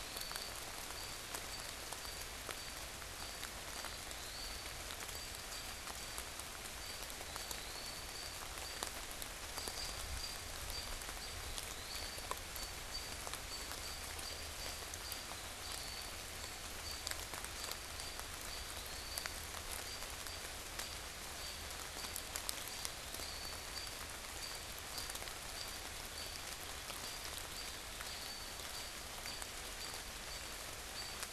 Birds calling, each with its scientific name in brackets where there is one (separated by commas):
Eastern Wood-Pewee (Contopus virens), American Robin (Turdus migratorius)